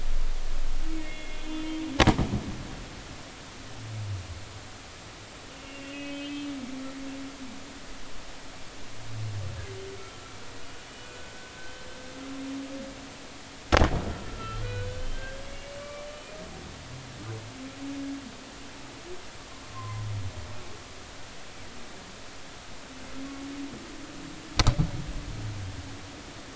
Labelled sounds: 0.9	1.8	humpback whale, 2.1 to 3.2 kHz
5.6	6.5	humpback whale, 2.5 to 3.2 kHz
10.0	10.3	humpback whale, 1.3 to 1.4 kHz
11.0	11.9	humpback whale, 1.4 to 1.6 kHz
14.3	16.0	humpback whale, 1.1 to 3.4 kHz
19.7	20.0	humpback whale, 0.96 to 1.1 kHz

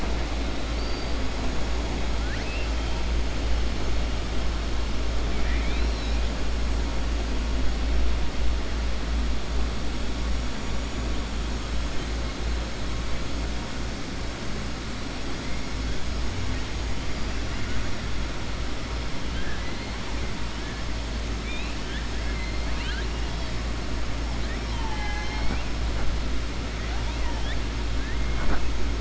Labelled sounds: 0.7	1.1	killer whale, southern resident, 4.5 to 4.8 kHz
2.2	2.7	killer whale, southern resident, 1.4 to 3.2 kHz
5.3	6.2	killer whale, southern resident, 1.4 to 5.7 kHz
21.3	22.1	killer whale, southern resident, 1.6 to 4.0 kHz
22.6	23.1	killer whale, southern resident, 1.3 to 4.7 kHz
26.8	27.6	killer whale, southern resident, 0.88 to 3.9 kHz

